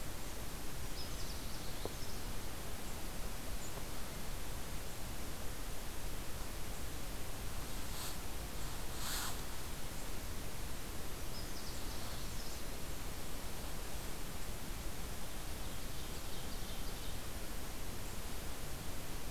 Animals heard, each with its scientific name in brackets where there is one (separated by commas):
Ovenbird (Seiurus aurocapilla), Canada Warbler (Cardellina canadensis)